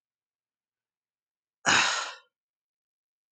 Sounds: Sigh